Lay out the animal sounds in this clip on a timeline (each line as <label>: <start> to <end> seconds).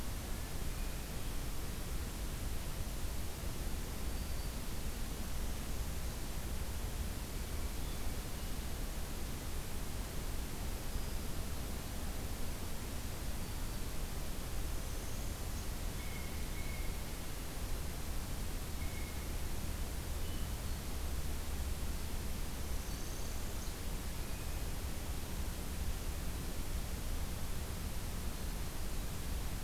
Black-throated Green Warbler (Setophaga virens): 3.2 to 4.8 seconds
Hermit Thrush (Catharus guttatus): 7.4 to 8.6 seconds
Black-throated Green Warbler (Setophaga virens): 10.7 to 11.5 seconds
Black-throated Green Warbler (Setophaga virens): 13.2 to 14.0 seconds
Northern Parula (Setophaga americana): 14.6 to 15.7 seconds
Blue Jay (Cyanocitta cristata): 15.9 to 17.3 seconds
Blue Jay (Cyanocitta cristata): 18.7 to 19.3 seconds
Hermit Thrush (Catharus guttatus): 20.2 to 21.0 seconds
Northern Parula (Setophaga americana): 22.6 to 23.8 seconds
Black-throated Green Warbler (Setophaga virens): 22.7 to 23.6 seconds
Hermit Thrush (Catharus guttatus): 24.1 to 24.9 seconds